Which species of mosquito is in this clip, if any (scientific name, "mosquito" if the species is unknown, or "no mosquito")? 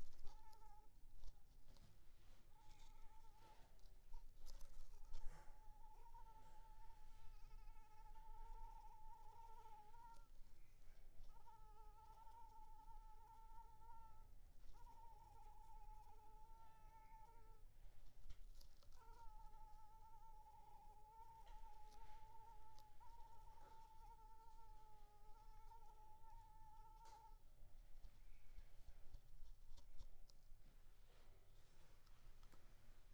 Anopheles arabiensis